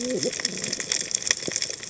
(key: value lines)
label: biophony, cascading saw
recorder: HydroMoth